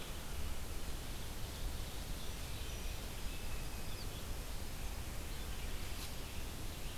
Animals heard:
forest ambience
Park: Marsh-Billings-Rockefeller National Historical Park